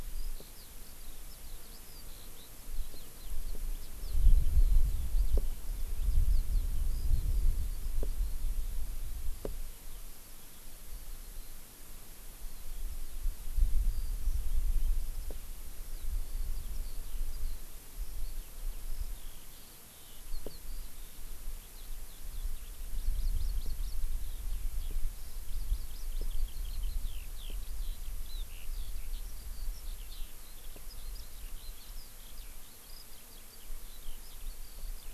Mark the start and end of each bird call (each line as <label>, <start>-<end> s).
Eurasian Skylark (Alauda arvensis), 0.0-11.5 s
Eurasian Skylark (Alauda arvensis), 12.5-35.1 s
Hawaii Amakihi (Chlorodrepanis virens), 22.9-23.9 s
Hawaii Amakihi (Chlorodrepanis virens), 25.5-26.2 s